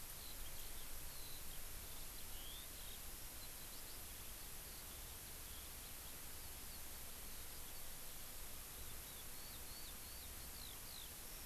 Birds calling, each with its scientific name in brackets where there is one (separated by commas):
Eurasian Skylark (Alauda arvensis)